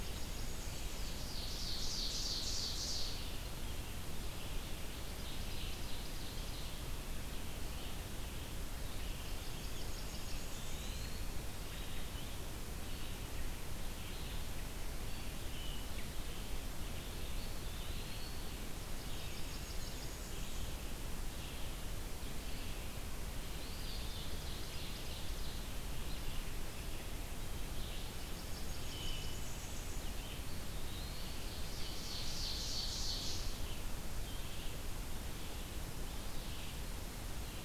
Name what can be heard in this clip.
Blackburnian Warbler, Red-eyed Vireo, Ovenbird, Eastern Wood-Pewee